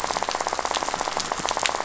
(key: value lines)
label: biophony, rattle
recorder: SoundTrap 500